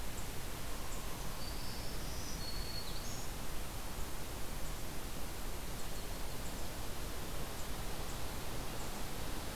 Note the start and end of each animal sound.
[1.32, 3.33] Black-throated Green Warbler (Setophaga virens)

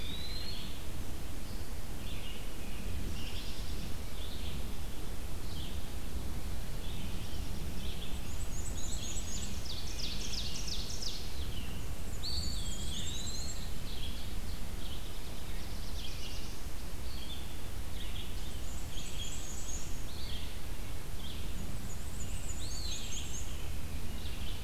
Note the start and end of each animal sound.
[0.00, 0.96] Eastern Wood-Pewee (Contopus virens)
[0.00, 2.38] Red-eyed Vireo (Vireo olivaceus)
[2.94, 3.99] American Robin (Turdus migratorius)
[2.97, 24.64] Red-eyed Vireo (Vireo olivaceus)
[6.82, 8.09] American Robin (Turdus migratorius)
[8.00, 9.74] Black-and-white Warbler (Mniotilta varia)
[9.10, 11.28] Ovenbird (Seiurus aurocapilla)
[11.83, 13.90] Black-and-white Warbler (Mniotilta varia)
[12.08, 13.74] Eastern Wood-Pewee (Contopus virens)
[13.09, 14.82] Ovenbird (Seiurus aurocapilla)
[15.14, 16.87] Black-throated Blue Warbler (Setophaga caerulescens)
[18.43, 20.00] Black-and-white Warbler (Mniotilta varia)
[21.41, 23.59] Black-and-white Warbler (Mniotilta varia)
[22.39, 23.54] Eastern Wood-Pewee (Contopus virens)

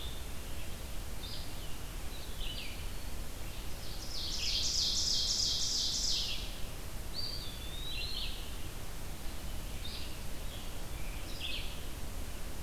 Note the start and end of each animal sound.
[0.00, 12.62] Red-eyed Vireo (Vireo olivaceus)
[3.69, 6.57] Ovenbird (Seiurus aurocapilla)
[6.91, 8.32] Eastern Wood-Pewee (Contopus virens)
[9.12, 11.41] Scarlet Tanager (Piranga olivacea)

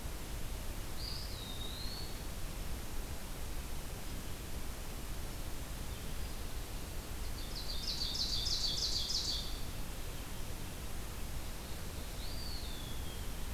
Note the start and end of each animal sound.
[0.85, 2.37] Eastern Wood-Pewee (Contopus virens)
[7.11, 9.76] Ovenbird (Seiurus aurocapilla)
[12.12, 13.54] Eastern Wood-Pewee (Contopus virens)

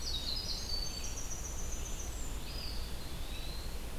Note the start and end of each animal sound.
[0.00, 2.54] Winter Wren (Troglodytes hiemalis)
[2.25, 3.98] Eastern Wood-Pewee (Contopus virens)

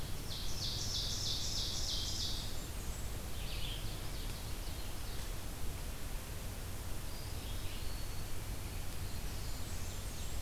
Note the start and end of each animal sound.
[0.00, 2.60] Ovenbird (Seiurus aurocapilla)
[1.59, 3.39] Blackburnian Warbler (Setophaga fusca)
[3.28, 10.41] Red-eyed Vireo (Vireo olivaceus)
[3.45, 5.43] Ovenbird (Seiurus aurocapilla)
[6.92, 8.38] Eastern Wood-Pewee (Contopus virens)
[8.87, 10.41] Ovenbird (Seiurus aurocapilla)
[9.05, 10.41] Blackburnian Warbler (Setophaga fusca)

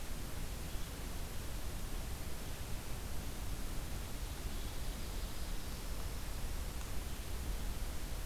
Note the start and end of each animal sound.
[0.00, 2.85] Red-eyed Vireo (Vireo olivaceus)

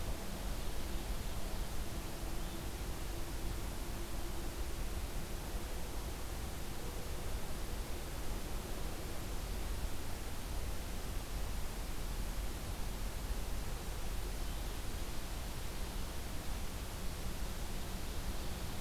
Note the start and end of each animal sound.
[0.23, 1.83] Ovenbird (Seiurus aurocapilla)
[4.88, 9.23] Mourning Dove (Zenaida macroura)

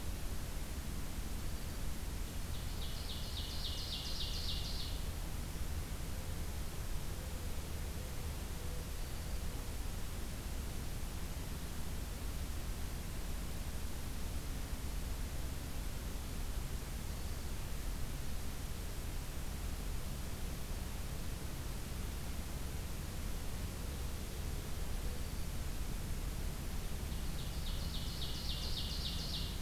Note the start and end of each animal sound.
[1.28, 1.87] Dark-eyed Junco (Junco hyemalis)
[2.48, 5.04] Ovenbird (Seiurus aurocapilla)
[7.79, 9.69] Mourning Dove (Zenaida macroura)
[17.05, 17.68] Dark-eyed Junco (Junco hyemalis)
[24.82, 25.49] Dark-eyed Junco (Junco hyemalis)
[27.07, 29.61] Ovenbird (Seiurus aurocapilla)

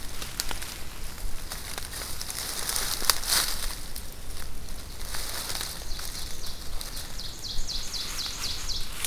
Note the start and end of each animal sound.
[4.53, 9.06] Ovenbird (Seiurus aurocapilla)

